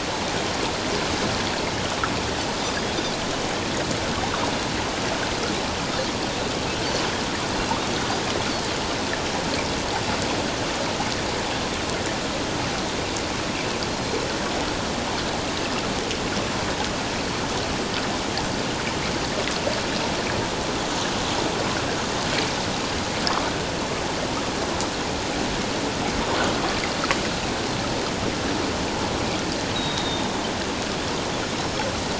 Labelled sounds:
29.7	30.3	Pacific white-sided dolphin, 3.6 to 3.9 kHz
31.6	31.9	Pacific white-sided dolphin, 5.3 to 5.5 kHz

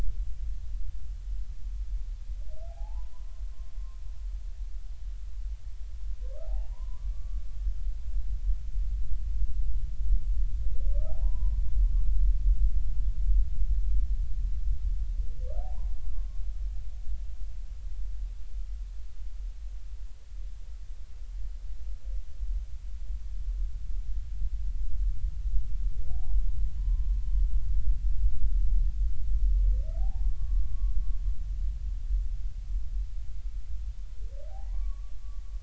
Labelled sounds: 2.7	3.4	humpback whale, 0.80 to 1.2 kHz
6.4	7.4	humpback whale, 0.80 to 1.2 kHz
10.9	11.6	humpback whale, 0.80 to 1.3 kHz
15.6	16.4	humpback whale, 0.80 to 1.2 kHz
26.1	26.5	humpback whale, 0.80 to 1.2 kHz
26.8	27.1	humpback whale, 0.96 to 1.1 kHz
30.0	30.9	humpback whale, 0.80 to 1.2 kHz
34.5	35.1	humpback whale, 0.80 to 1.2 kHz

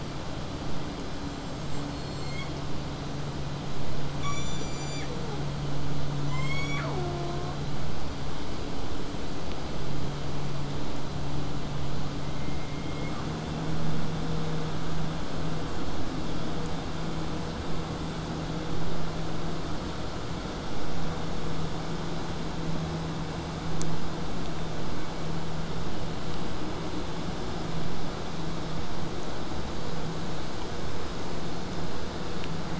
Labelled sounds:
1.3	2.6	killer whale, southern resident, 1.9 to 8.0 kHz
4.2	5.5	killer whale, southern resident, J pod, call S01, 0.29 to 8.0 kHz
6.3	7.6	killer whale, southern resident, J pod, call S41, 0.29 to 8.0 kHz

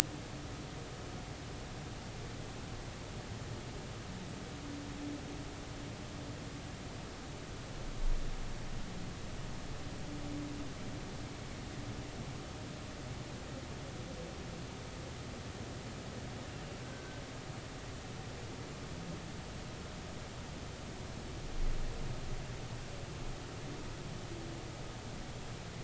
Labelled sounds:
16.8	17.2	humpback whale, 1.5 to 1.6 kHz

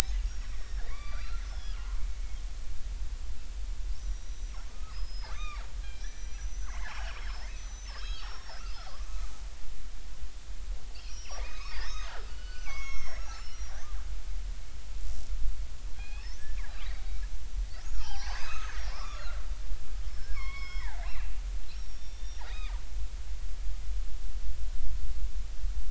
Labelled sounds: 0.2	2.1	killer whale, northern resident, G clan, 0.96 to 6.7 kHz
4.0	9.0	killer whale, northern resident, G clan, 0.80 to 6.6 kHz
11.1	13.8	killer whale, northern resident, G clan, 0.80 to 6.5 kHz
16.0	17.2	killer whale, northern resident, G clan, 1.5 to 4.8 kHz
17.7	21.4	killer whale, northern resident, G clan, 0.80 to 6.5 kHz
21.7	22.7	killer whale, northern resident, G clan, 3.4 to 5.7 kHz

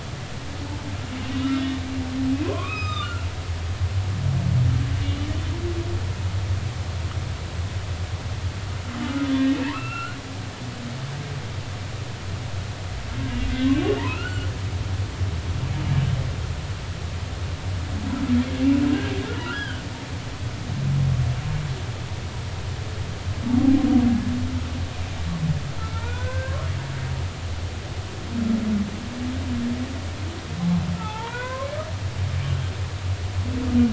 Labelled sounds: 2.5	3.1	humpback whale, 0.96 to 5.2 kHz
5.0	5.3	humpback whale, 2.8 to 3.0 kHz
9.0	10.2	humpback whale, 1.2 to 2.8 kHz
13.3	14.5	humpback whale, 1.2 to 3.0 kHz
19.3	19.8	humpback whale, 1.2 to 3.4 kHz
25.8	26.6	humpback whale, 0.86 to 2.5 kHz
31.0	31.7	humpback whale, 0.80 to 3.6 kHz

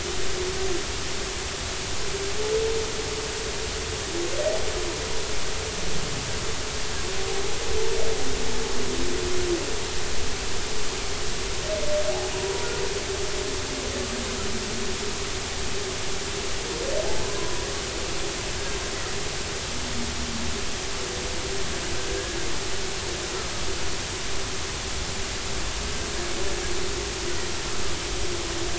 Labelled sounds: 12.3	12.7	humpback whale, 0.90 to 1.0 kHz
17.3	17.7	humpback whale, 0.93 to 1.1 kHz

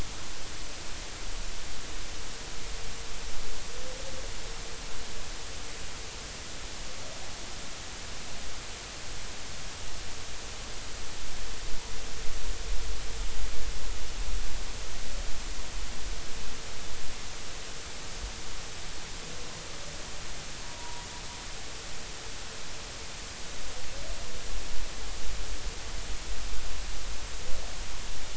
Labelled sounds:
20.6	21.1	humpback whale, 0.86 to 1.0 kHz

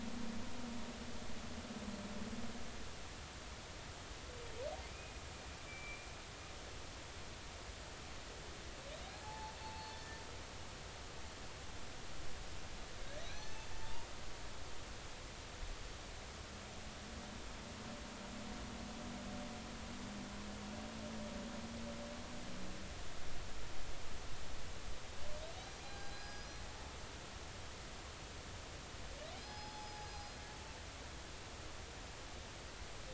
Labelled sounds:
4.9	6.1	humpback whale, 2.1 to 2.6 kHz
9.2	10.2	humpback whale, 0.80 to 4.4 kHz
13.3	14.1	humpback whale, 0.83 to 6.2 kHz
25.8	26.6	humpback whale, 0.80 to 5.1 kHz
29.4	30.4	humpback whale, 0.80 to 5.2 kHz

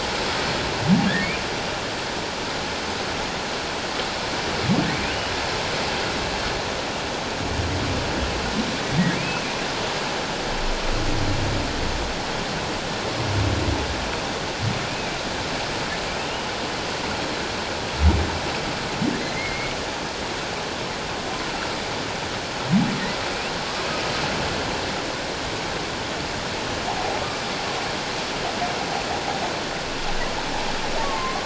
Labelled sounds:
9.2	9.5	humpback whale, 2.3 to 2.7 kHz
14.9	15.1	humpback whale, 2.2 to 2.6 kHz
19.3	19.8	humpback whale, 2.0 to 2.3 kHz
31.0	31.4	humpback whale, 1.0 to 1.2 kHz

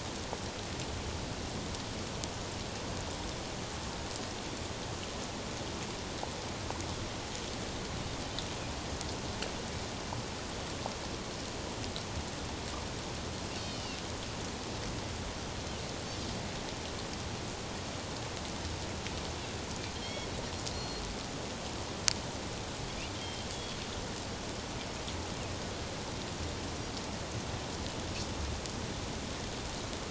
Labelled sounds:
13.5	14.0	Pacific white-sided dolphin, 2.6 to 5.0 kHz
20.0	21.0	Pacific white-sided dolphin, 2.1 to 5.8 kHz
23.2	23.8	Pacific white-sided dolphin, 3.1 to 3.5 kHz

